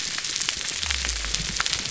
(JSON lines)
{"label": "biophony", "recorder": "SoundTrap 300"}